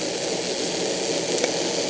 {"label": "anthrophony, boat engine", "recorder": "HydroMoth"}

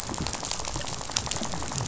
{"label": "biophony, rattle", "recorder": "SoundTrap 500"}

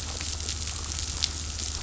{"label": "anthrophony, boat engine", "recorder": "SoundTrap 500"}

